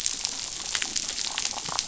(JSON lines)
{"label": "biophony, damselfish", "recorder": "SoundTrap 500"}